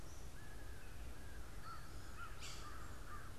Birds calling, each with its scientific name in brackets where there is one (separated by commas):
Yellow-bellied Sapsucker (Sphyrapicus varius), American Crow (Corvus brachyrhynchos)